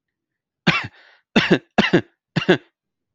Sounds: Cough